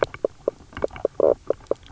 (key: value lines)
label: biophony, knock croak
recorder: SoundTrap 300